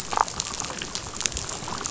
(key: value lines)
label: biophony, damselfish
recorder: SoundTrap 500